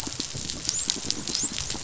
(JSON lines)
{"label": "biophony, dolphin", "recorder": "SoundTrap 500"}